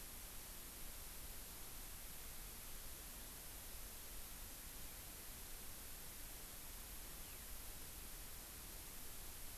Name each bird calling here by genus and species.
Alauda arvensis